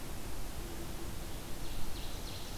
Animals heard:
Ovenbird (Seiurus aurocapilla)

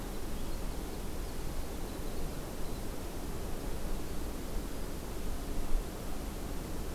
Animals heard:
Winter Wren (Troglodytes hiemalis)

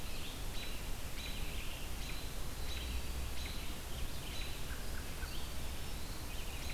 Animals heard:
Eastern Wood-Pewee (Contopus virens)
American Robin (Turdus migratorius)
Red-eyed Vireo (Vireo olivaceus)

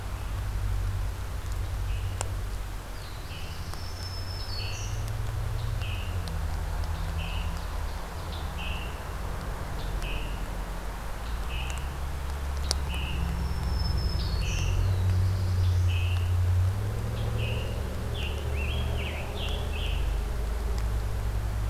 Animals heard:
Scarlet Tanager (Piranga olivacea)
Black-throated Blue Warbler (Setophaga caerulescens)
Ovenbird (Seiurus aurocapilla)
Black-throated Green Warbler (Setophaga virens)

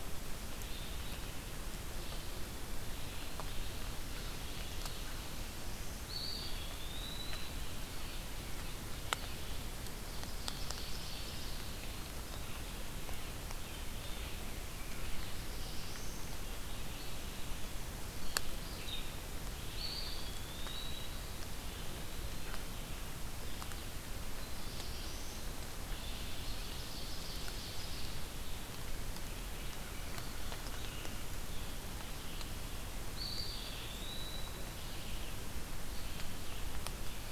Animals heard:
American Crow (Corvus brachyrhynchos)
Red-eyed Vireo (Vireo olivaceus)
Ovenbird (Seiurus aurocapilla)
Black-throated Blue Warbler (Setophaga caerulescens)
Eastern Wood-Pewee (Contopus virens)

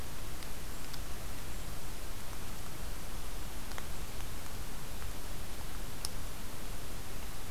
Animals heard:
Golden-crowned Kinglet (Regulus satrapa)

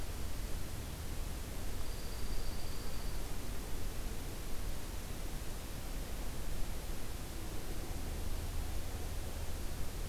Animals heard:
Dark-eyed Junco (Junco hyemalis)

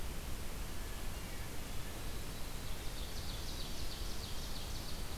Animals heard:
Ovenbird (Seiurus aurocapilla)
Hermit Thrush (Catharus guttatus)

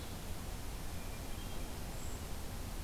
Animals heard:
Brown Creeper (Certhia americana)
Hermit Thrush (Catharus guttatus)

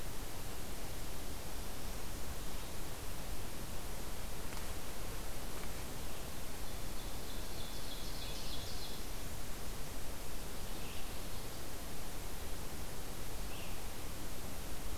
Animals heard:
Red-eyed Vireo (Vireo olivaceus)
Ovenbird (Seiurus aurocapilla)

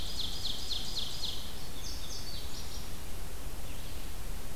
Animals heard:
Red-eyed Vireo (Vireo olivaceus)
Ovenbird (Seiurus aurocapilla)
Indigo Bunting (Passerina cyanea)

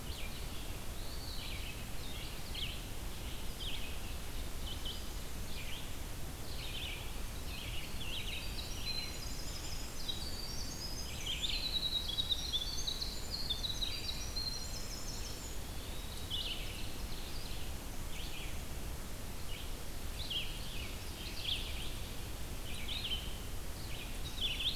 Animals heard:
Winter Wren (Troglodytes hiemalis)
Ovenbird (Seiurus aurocapilla)
Red-eyed Vireo (Vireo olivaceus)
Eastern Wood-Pewee (Contopus virens)

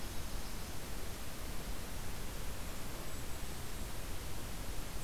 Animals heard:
Golden-crowned Kinglet (Regulus satrapa)

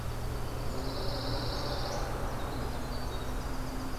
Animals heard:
Winter Wren (Troglodytes hiemalis)
Pine Warbler (Setophaga pinus)

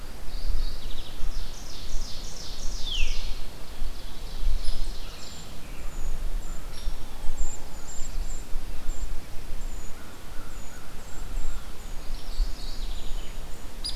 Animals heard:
Mourning Warbler (Geothlypis philadelphia)
Veery (Catharus fuscescens)
Ovenbird (Seiurus aurocapilla)
Black-throated Blue Warbler (Setophaga caerulescens)
American Crow (Corvus brachyrhynchos)
Brown Creeper (Certhia americana)
American Robin (Turdus migratorius)
Hairy Woodpecker (Dryobates villosus)

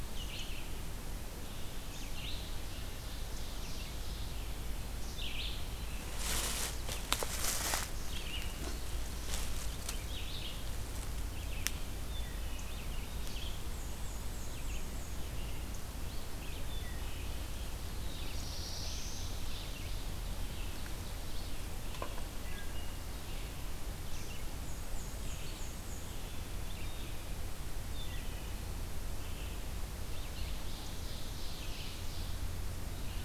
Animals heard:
Ovenbird (Seiurus aurocapilla)
Black-throated Blue Warbler (Setophaga caerulescens)
Red-eyed Vireo (Vireo olivaceus)
Wood Thrush (Hylocichla mustelina)
Black-and-white Warbler (Mniotilta varia)

